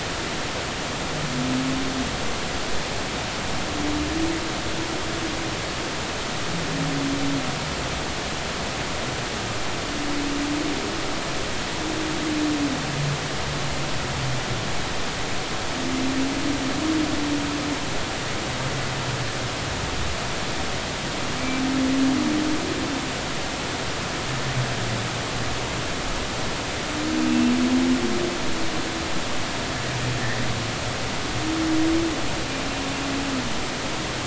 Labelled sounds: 30.2	30.4	humpback whale, 1.7 to 2.0 kHz

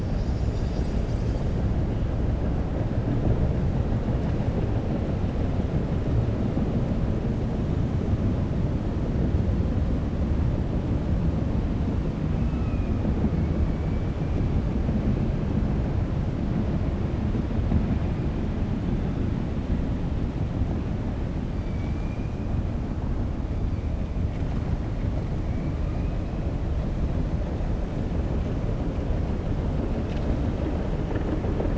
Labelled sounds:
21.6	22.2	killer whale, southern resident, 2.2 to 3.1 kHz

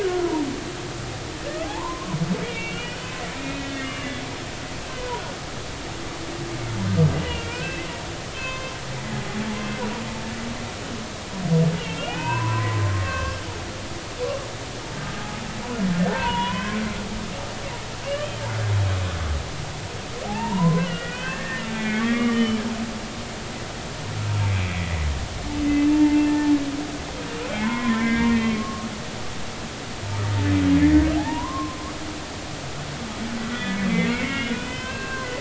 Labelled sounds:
0.0	0.5	humpback whale, 0.86 to 1.7 kHz
1.6	2.2	humpback whale, 0.80 to 1.2 kHz
2.5	3.0	humpback whale, 2.2 to 3.0 kHz
3.4	4.2	humpback whale, 1.1 to 2.9 kHz
4.9	5.2	humpback whale, 0.90 to 1.1 kHz
7.3	8.7	humpback whale, 0.99 to 3.2 kHz
11.8	13.4	humpback whale, 0.80 to 3.4 kHz
16.1	16.8	humpback whale, 0.80 to 3.2 kHz
18.0	18.4	humpback whale, 2.2 to 3.2 kHz
20.2	22.6	humpback whale, 0.80 to 3.1 kHz
24.5	25.0	humpback whale, 1.9 to 2.7 kHz
25.7	26.5	humpback whale, 0.83 to 2.8 kHz
27.5	28.9	humpback whale, 0.90 to 3.4 kHz
31.1	31.8	humpback whale, 0.80 to 1.2 kHz
33.5	33.8	humpback whale, 1.9 to 2.0 kHz
34.0	35.3	humpback whale, 0.99 to 3.1 kHz

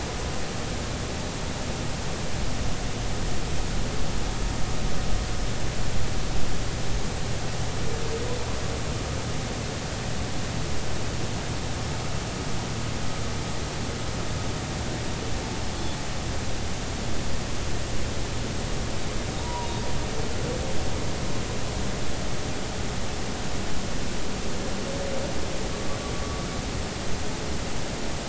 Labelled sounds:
19.4	19.7	humpback whale, 0.90 to 1.0 kHz

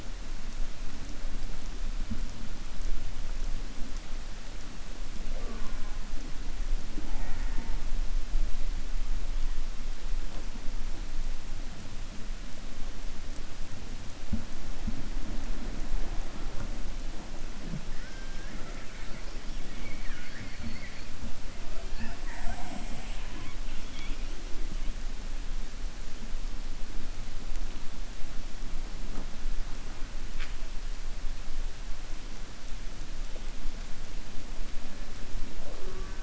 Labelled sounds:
17.9	18.8	killer whale, 0.39 to 2.1 kHz

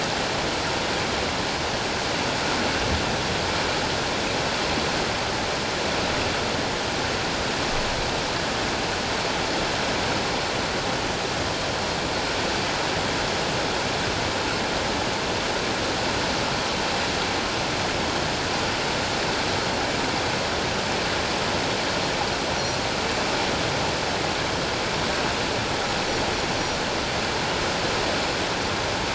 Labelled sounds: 22.5	22.8	Pacific white-sided dolphin, 5.6 to 5.9 kHz

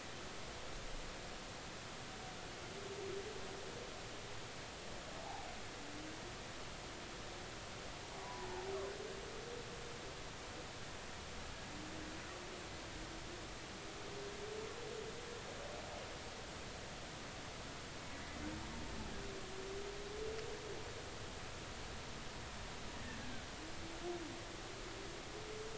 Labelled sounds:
5.2	5.5	humpback whale, 0.80 to 0.93 kHz
8.2	8.5	humpback whale, 0.83 to 1.1 kHz

